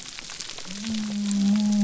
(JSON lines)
{"label": "biophony", "recorder": "SoundTrap 300"}